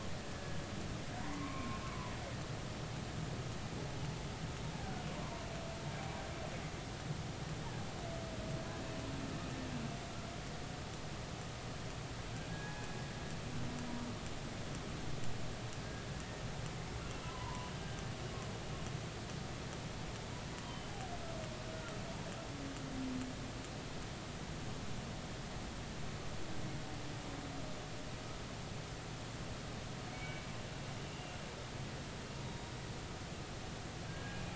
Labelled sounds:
0.3	1.8	humpback whale, 0.90 to 2.5 kHz
4.7	5.0	humpback whale, 1.4 to 1.7 kHz
12.5	12.9	humpback whale, 1.6 to 1.7 kHz
17.1	18.0	humpback whale, 0.86 to 2.8 kHz
20.6	20.9	humpback whale, 3.0 to 3.2 kHz
21.7	22.0	humpback whale, 1.2 to 1.5 kHz
30.1	30.5	humpback whale, 2.1 to 2.3 kHz
31.1	31.4	humpback whale, 2.7 to 2.9 kHz
32.5	32.7	humpback whale, 3.7 to 3.8 kHz
34.1	34.4	humpback whale, 1.5 to 1.7 kHz

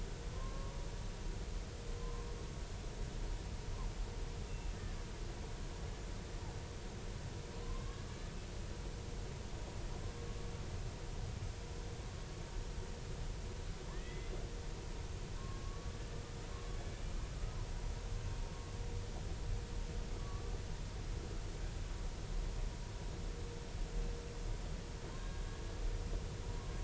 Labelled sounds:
0.3	0.7	killer whale, Bigg's (transient), 0.99 to 1.1 kHz
2.0	2.4	killer whale, Bigg's (transient), 0.96 to 1.1 kHz
4.5	4.8	killer whale, Bigg's (transient), 2.6 to 2.8 kHz
7.6	8.1	killer whale, Bigg's (transient), 0.99 to 1.7 kHz
13.9	14.3	killer whale, Bigg's (transient), 1.7 to 3.5 kHz
15.4	15.9	killer whale, Bigg's (transient), 1.0 to 1.2 kHz
16.9	17.6	killer whale, Bigg's (transient), 1.2 to 2.4 kHz
20.2	20.5	killer whale, Bigg's (transient), 0.96 to 1.2 kHz
25.2	25.4	killer whale, Bigg's (transient), 1.6 to 1.7 kHz

